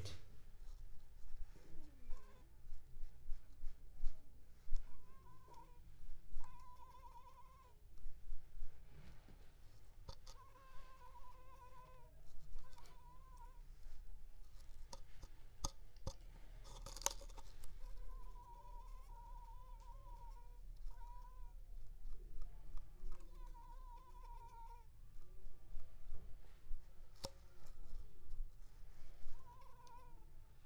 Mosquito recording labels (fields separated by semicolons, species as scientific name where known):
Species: Culex pipiens complex; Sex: female; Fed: unfed; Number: one; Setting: cup